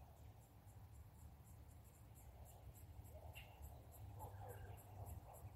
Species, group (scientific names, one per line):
Yoyetta celis
Cicadidae